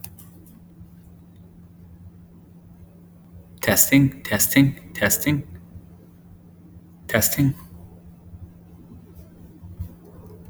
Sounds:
Cough